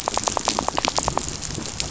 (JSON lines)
{"label": "biophony, rattle", "recorder": "SoundTrap 500"}